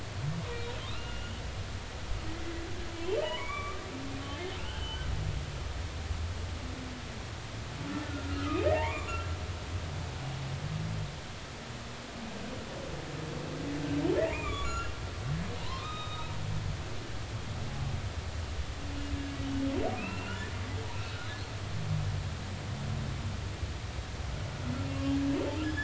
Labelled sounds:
0.9	1.4	humpback whale, 2.4 to 3.0 kHz
2.9	3.8	humpback whale, 0.86 to 3.2 kHz
4.6	5.1	humpback whale, 1.3 to 3.2 kHz
8.1	9.1	humpback whale, 0.80 to 2.7 kHz
14.3	14.9	humpback whale, 1.1 to 7.2 kHz
15.6	16.3	humpback whale, 0.83 to 3.9 kHz
20.0	20.4	humpback whale, 2.4 to 2.9 kHz
24.8	25.2	humpback whale, 2.7 to 2.8 kHz

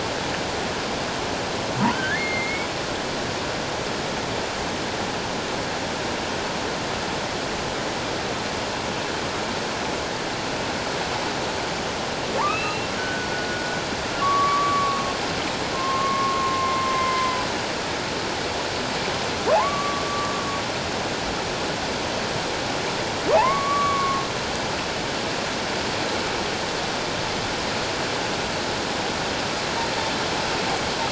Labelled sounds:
1.9	2.7	humpback whale, 1.4 to 4.3 kHz
12.5	13.7	humpback whale, 1.4 to 4.1 kHz
14.2	17.4	humpback whale, 0.94 to 2.1 kHz
19.5	20.3	humpback whale, 0.78 to 1.2 kHz
23.3	24.2	humpback whale, 0.78 to 2.3 kHz

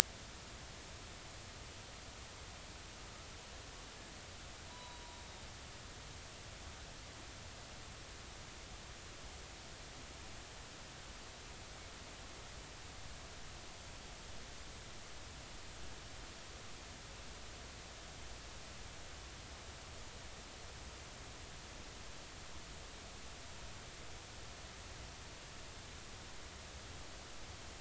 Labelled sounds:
4.7	5.1	killer whale, Bigg's (transient), 0.90 to 4.0 kHz

